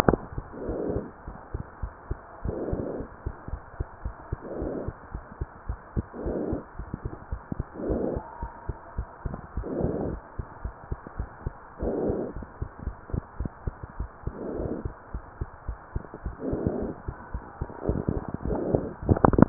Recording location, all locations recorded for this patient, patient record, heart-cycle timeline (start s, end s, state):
pulmonary valve (PV)
aortic valve (AV)+pulmonary valve (PV)+tricuspid valve (TV)+mitral valve (MV)
#Age: Child
#Sex: Female
#Height: 113.0 cm
#Weight: 22.5 kg
#Pregnancy status: False
#Murmur: Absent
#Murmur locations: nan
#Most audible location: nan
#Systolic murmur timing: nan
#Systolic murmur shape: nan
#Systolic murmur grading: nan
#Systolic murmur pitch: nan
#Systolic murmur quality: nan
#Diastolic murmur timing: nan
#Diastolic murmur shape: nan
#Diastolic murmur grading: nan
#Diastolic murmur pitch: nan
#Diastolic murmur quality: nan
#Outcome: Normal
#Campaign: 2015 screening campaign
0.00	1.18	unannotated
1.18	1.24	diastole
1.24	1.34	S1
1.34	1.50	systole
1.50	1.62	S2
1.62	1.80	diastole
1.80	1.89	S1
1.89	2.07	systole
2.07	2.17	S2
2.17	2.40	diastole
2.40	2.56	S1
2.56	2.72	systole
2.72	2.84	S2
2.84	2.98	diastole
2.98	3.11	S1
3.11	3.23	systole
3.23	3.31	S2
3.31	3.50	diastole
3.50	3.58	S1
3.58	3.77	systole
3.77	3.84	S2
3.84	4.03	diastole
4.03	4.11	S1
4.11	4.31	systole
4.31	4.38	S2
4.38	4.58	diastole
4.58	4.74	S1
4.74	4.86	systole
4.86	4.96	S2
4.96	5.11	diastole
5.11	5.22	S1
5.22	5.38	systole
5.38	5.47	S2
5.47	5.65	diastole
5.65	5.77	S1
5.77	5.94	systole
5.94	6.04	S2
6.04	6.24	diastole
6.24	6.38	S1
6.38	6.48	systole
6.48	6.60	S2
6.60	6.77	diastole
6.77	6.88	S1
6.88	7.01	systole
7.01	7.10	S2
7.10	7.30	diastole
7.30	7.41	S1
7.41	7.57	systole
7.57	7.65	S2
7.65	7.86	diastole
7.86	8.02	S1
8.02	8.12	systole
8.12	8.24	S2
8.24	8.40	diastole
8.40	8.48	S1
8.48	8.67	systole
8.67	8.75	S2
8.75	8.96	diastole
8.96	9.05	S1
9.05	9.22	systole
9.22	9.30	S2
9.30	9.54	diastole
9.54	9.64	S1
9.64	9.79	systole
9.79	9.92	S2
9.92	10.06	diastole
10.06	10.22	S1
10.22	10.36	systole
10.36	10.45	S2
10.45	10.62	diastole
10.62	10.70	S1
10.70	10.89	systole
10.89	10.96	S2
10.96	11.16	diastole
11.16	11.26	S1
11.26	11.44	systole
11.44	11.52	S2
11.52	11.82	diastole
11.82	19.49	unannotated